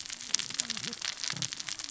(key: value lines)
label: biophony, cascading saw
recorder: SoundTrap 600 or HydroMoth